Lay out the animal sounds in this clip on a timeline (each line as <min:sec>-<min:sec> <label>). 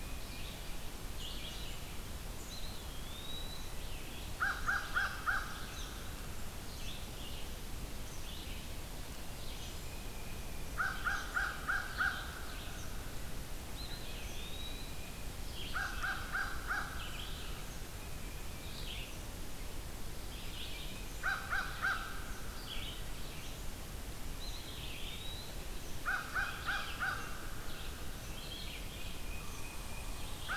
0:00.0-0:00.6 Tufted Titmouse (Baeolophus bicolor)
0:00.0-0:12.9 Red-eyed Vireo (Vireo olivaceus)
0:02.2-0:04.0 Eastern Wood-Pewee (Contopus virens)
0:04.1-0:05.6 American Crow (Corvus brachyrhynchos)
0:10.4-0:12.3 American Crow (Corvus brachyrhynchos)
0:13.5-0:15.4 Eastern Wood-Pewee (Contopus virens)
0:13.9-0:30.6 Red-eyed Vireo (Vireo olivaceus)
0:15.6-0:17.3 American Crow (Corvus brachyrhynchos)
0:20.9-0:22.5 American Crow (Corvus brachyrhynchos)
0:24.3-0:25.7 Eastern Wood-Pewee (Contopus virens)
0:25.9-0:27.3 American Crow (Corvus brachyrhynchos)
0:28.9-0:30.4 Tufted Titmouse (Baeolophus bicolor)